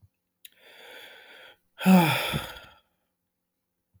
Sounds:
Sigh